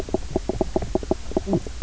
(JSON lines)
{"label": "biophony, knock croak", "recorder": "SoundTrap 300"}